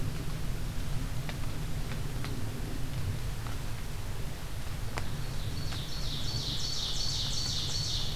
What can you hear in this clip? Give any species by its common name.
Ovenbird